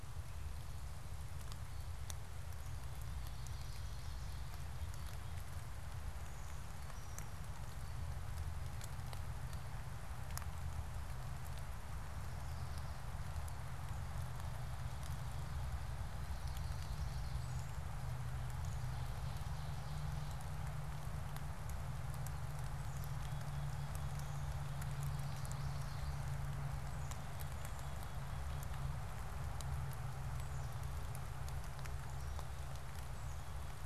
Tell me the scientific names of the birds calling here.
Setophaga pensylvanica, Seiurus aurocapilla, Poecile atricapillus